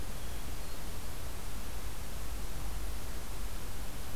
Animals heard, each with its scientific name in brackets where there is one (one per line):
Hermit Thrush (Catharus guttatus)